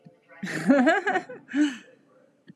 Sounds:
Laughter